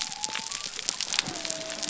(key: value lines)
label: biophony
recorder: SoundTrap 300